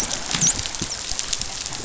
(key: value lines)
label: biophony, dolphin
recorder: SoundTrap 500